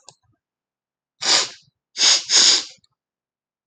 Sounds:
Sniff